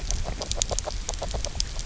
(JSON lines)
{"label": "biophony, grazing", "recorder": "SoundTrap 300"}